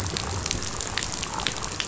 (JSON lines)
{"label": "biophony", "recorder": "SoundTrap 500"}